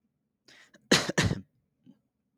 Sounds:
Throat clearing